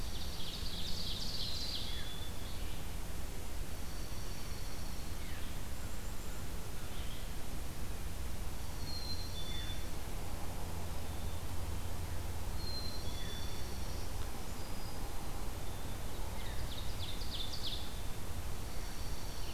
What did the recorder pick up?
Dark-eyed Junco, Ovenbird, Red-eyed Vireo, Black-capped Chickadee, Black-throated Green Warbler